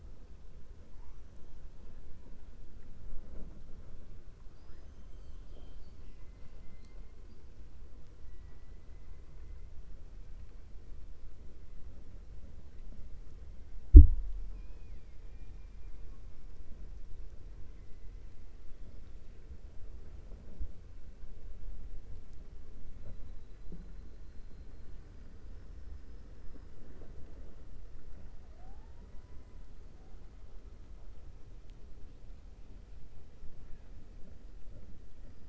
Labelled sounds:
14.4	15.2	killer whale, 1.7 to 5.2 kHz

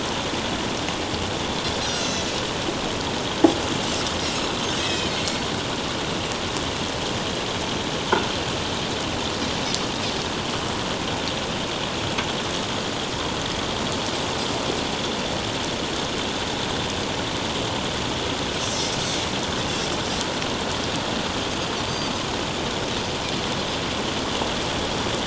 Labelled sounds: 1.8	2.4	Pacific white-sided dolphin, 2.6 to 6.9 kHz
4.8	5.4	Pacific white-sided dolphin, 2.4 to 5.3 kHz
18.6	18.9	Pacific white-sided dolphin, 5.2 to 8.0 kHz
21.9	22.2	Pacific white-sided dolphin, 4.5 to 4.8 kHz

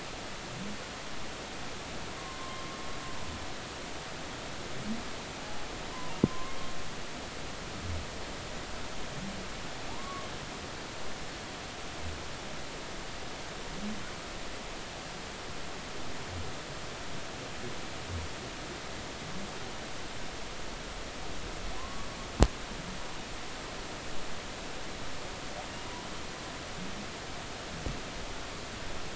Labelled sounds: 2.2	2.6	humpback whale, 0.99 to 1.1 kHz
5.9	6.5	humpback whale, 0.86 to 1.1 kHz
9.9	10.3	humpback whale, 0.80 to 1.2 kHz
21.8	22.1	humpback whale, 0.96 to 1.2 kHz

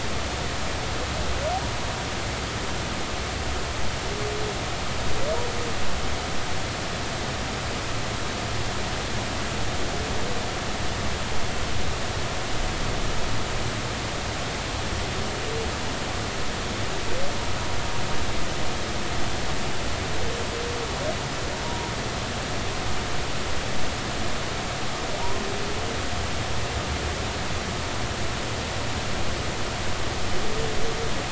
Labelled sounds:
21.6	21.9	humpback whale, 0.90 to 1.0 kHz

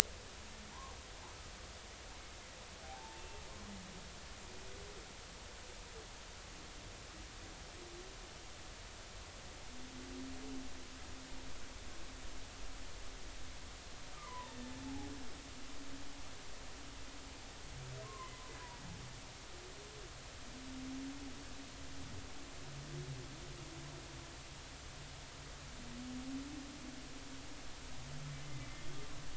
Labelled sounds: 2.8	3.4	humpback whale, 0.80 to 2.7 kHz
14.1	15.1	humpback whale, 0.80 to 1.3 kHz
18.0	18.3	humpback whale, 0.96 to 1.2 kHz
28.4	29.1	humpback whale, 2.0 to 3.4 kHz

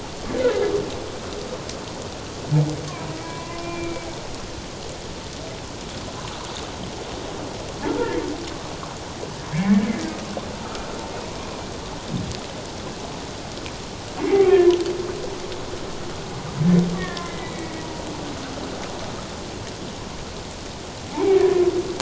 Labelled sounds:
3.2	4.1	humpback whale, 0.94 to 2.5 kHz
9.5	9.9	humpback whale, 1.6 to 2.3 kHz
10.6	10.9	humpback whale, 1.2 to 1.5 kHz
14.2	14.5	humpback whale, 1.9 to 2.4 kHz
17.0	17.8	humpback whale, 1.7 to 2.1 kHz
21.1	21.6	humpback whale, 0.78 to 2.4 kHz

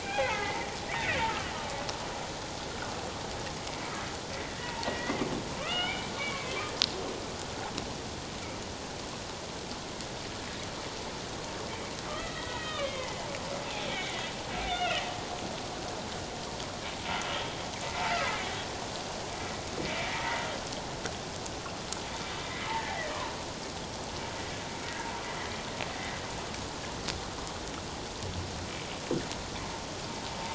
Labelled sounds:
0.0	1.2	humpback whale, 0.78 to 2.7 kHz
4.6	5.3	humpback whale, 0.81 to 2.2 kHz
5.6	6.6	humpback whale, 1.1 to 3.2 kHz
12.1	14.3	humpback whale, 1.1 to 2.7 kHz
14.6	15.0	humpback whale, 1.2 to 2.9 kHz
19.8	20.4	humpback whale, 0.88 to 2.4 kHz
22.7	23.0	humpback whale, 0.78 to 1.0 kHz

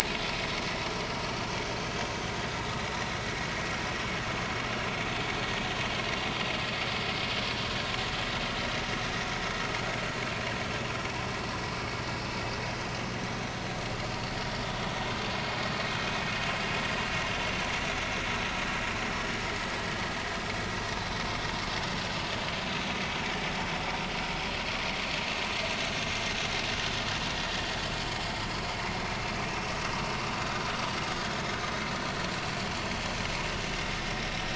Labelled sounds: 0.0	0.6	vessel noise, 0.90 to 1.1 kHz

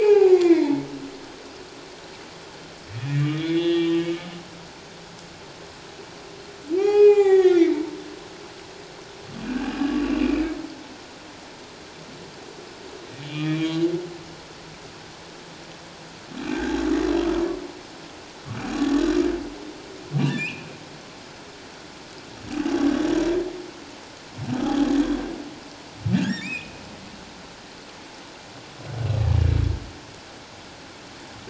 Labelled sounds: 2.9	4.1	humpback whale, 1.7 to 4.1 kHz
6.8	8.0	humpback whale, 0.78 to 7.0 kHz
9.4	10.6	humpback whale, 1.4 to 2.9 kHz
13.2	13.8	humpback whale, 1.1 to 3.5 kHz
16.5	16.8	humpback whale, 1.4 to 1.9 kHz
20.3	20.7	humpback whale, 1.6 to 3.0 kHz
24.5	24.8	humpback whale, 1.1 to 1.4 kHz
26.2	26.8	humpback whale, 1.5 to 3.8 kHz

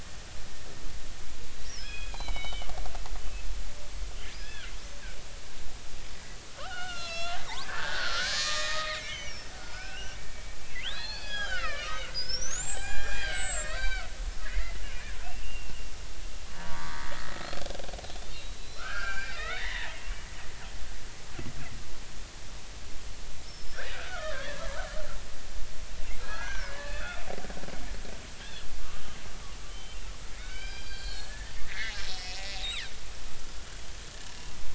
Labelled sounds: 1.6	2.7	killer whale, Bigg's (transient), 1.5 to 5.9 kHz
4.4	4.7	killer whale, Bigg's (transient), 1.3 to 3.5 kHz
6.6	14.1	killer whale, Bigg's (transient), 0.80 to 8.0 kHz
14.4	15.8	killer whale, Bigg's (transient), 1.5 to 2.9 kHz
16.6	17.0	killer whale, Bigg's (transient), 0.90 to 1.2 kHz
18.2	20.0	killer whale, Bigg's (transient), 0.83 to 4.2 kHz
23.4	24.6	killer whale, Bigg's (transient), 1.0 to 5.5 kHz
26.2	27.2	killer whale, Bigg's (transient), 1.2 to 3.6 kHz
28.8	30.0	killer whale, Bigg's (transient), 1.1 to 3.2 kHz
30.4	32.9	killer whale, Bigg's (transient), 1.4 to 5.6 kHz

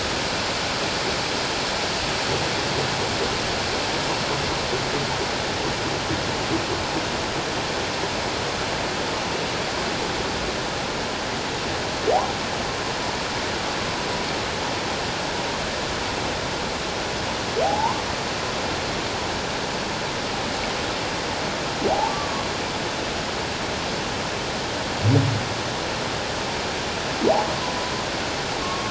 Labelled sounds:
17.6	18.0	humpback whale, 0.78 to 1.2 kHz
22.1	22.4	humpback whale, 1.1 to 1.2 kHz
28.6	28.8	humpback whale, 1.0 to 1.2 kHz

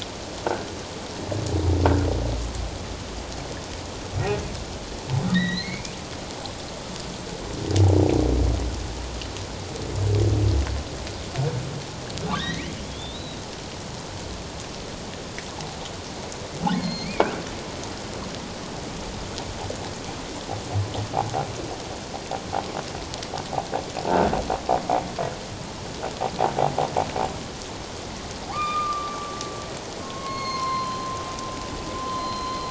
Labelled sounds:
5.3	6.0	humpback whale, 1.8 to 4.5 kHz
12.3	13.4	humpback whale, 1.5 to 4.3 kHz
16.8	17.4	humpback whale, 2.0 to 4.5 kHz
28.5	29.3	humpback whale, 1.0 to 4.9 kHz
30.0	32.6	humpback whale, 0.94 to 6.5 kHz

